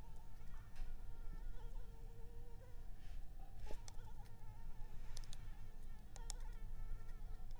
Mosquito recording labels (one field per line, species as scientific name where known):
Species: Anopheles arabiensis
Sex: female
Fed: unfed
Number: one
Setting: cup